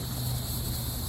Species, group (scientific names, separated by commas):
Neocicada hieroglyphica, Cicadidae